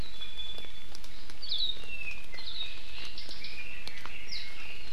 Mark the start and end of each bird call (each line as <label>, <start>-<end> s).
Iiwi (Drepanis coccinea), 0.1-0.9 s
Hawaii Akepa (Loxops coccineus), 1.4-1.8 s
Apapane (Himatione sanguinea), 1.8-2.5 s
Hawaii Akepa (Loxops coccineus), 2.4-2.7 s
Red-billed Leiothrix (Leiothrix lutea), 2.5-4.9 s